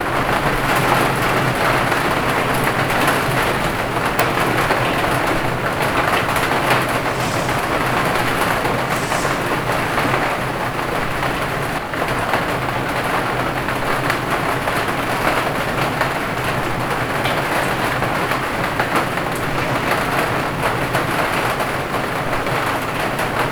Is it raining?
yes